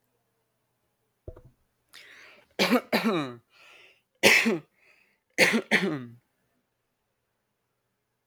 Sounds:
Cough